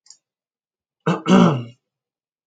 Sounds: Cough